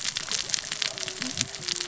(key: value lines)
label: biophony, cascading saw
recorder: SoundTrap 600 or HydroMoth